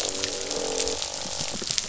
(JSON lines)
{"label": "biophony, croak", "recorder": "SoundTrap 500"}